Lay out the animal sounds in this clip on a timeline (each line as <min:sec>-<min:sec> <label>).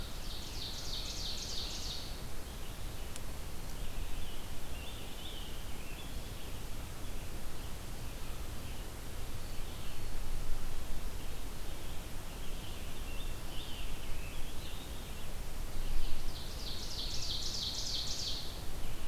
0:00.0-0:02.4 Ovenbird (Seiurus aurocapilla)
0:00.0-0:16.3 Red-eyed Vireo (Vireo olivaceus)
0:03.7-0:06.2 American Robin (Turdus migratorius)
0:12.3-0:15.3 American Robin (Turdus migratorius)
0:16.0-0:18.5 Ovenbird (Seiurus aurocapilla)
0:18.2-0:19.1 Red-eyed Vireo (Vireo olivaceus)